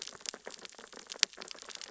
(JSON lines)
{"label": "biophony, sea urchins (Echinidae)", "recorder": "SoundTrap 600 or HydroMoth"}